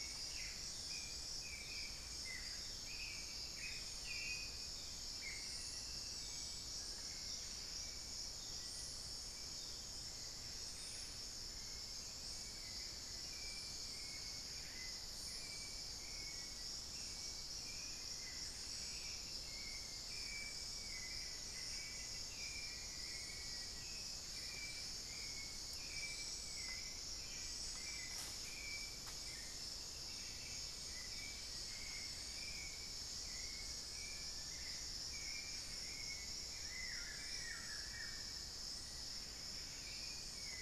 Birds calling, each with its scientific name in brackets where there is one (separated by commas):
Hauxwell's Thrush (Turdus hauxwelli), Buff-breasted Wren (Cantorchilus leucotis), unidentified bird, Buff-throated Woodcreeper (Xiphorhynchus guttatus)